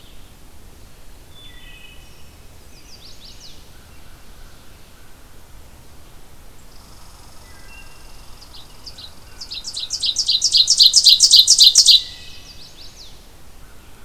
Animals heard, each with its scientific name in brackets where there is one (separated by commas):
Wood Thrush (Hylocichla mustelina), American Crow (Corvus brachyrhynchos), Red Squirrel (Tamiasciurus hudsonicus), Blue-headed Vireo (Vireo solitarius), Ovenbird (Seiurus aurocapilla), Chestnut-sided Warbler (Setophaga pensylvanica)